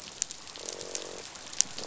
{"label": "biophony, croak", "recorder": "SoundTrap 500"}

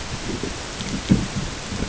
{"label": "ambient", "recorder": "HydroMoth"}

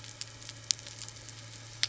{"label": "anthrophony, boat engine", "recorder": "SoundTrap 300"}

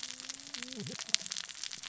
{"label": "biophony, cascading saw", "recorder": "SoundTrap 600 or HydroMoth"}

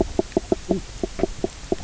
{"label": "biophony, knock croak", "recorder": "SoundTrap 300"}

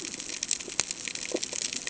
{"label": "ambient", "recorder": "HydroMoth"}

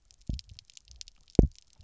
{"label": "biophony, double pulse", "recorder": "SoundTrap 300"}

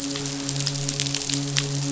{"label": "biophony, midshipman", "recorder": "SoundTrap 500"}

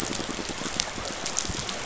{"label": "biophony", "recorder": "SoundTrap 500"}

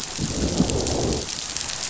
{"label": "biophony, growl", "recorder": "SoundTrap 500"}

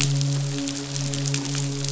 {"label": "biophony, midshipman", "recorder": "SoundTrap 500"}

